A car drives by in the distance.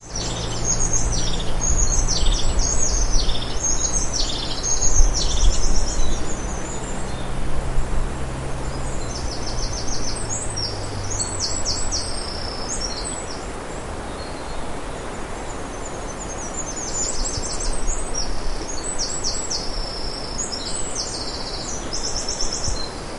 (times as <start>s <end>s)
0.0s 13.0s